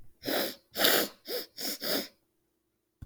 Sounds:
Sniff